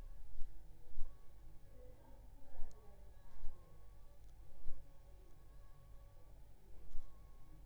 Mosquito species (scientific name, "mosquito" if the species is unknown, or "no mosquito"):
Aedes aegypti